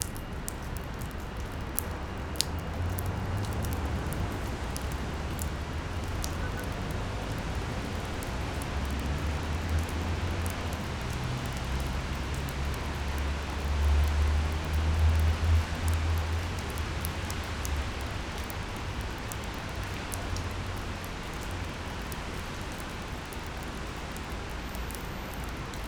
Is this outside?
yes